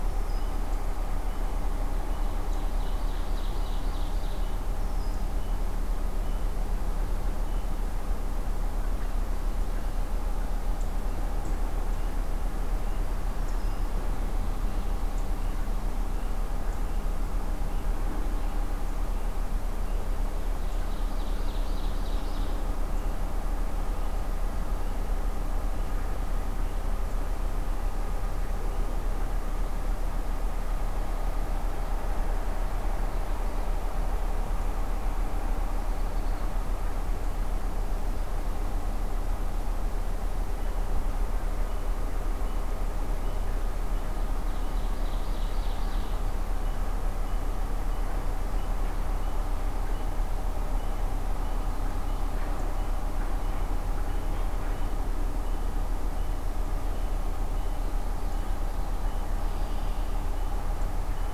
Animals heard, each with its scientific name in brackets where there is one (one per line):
Red-winged Blackbird (Agelaius phoeniceus)
Ovenbird (Seiurus aurocapilla)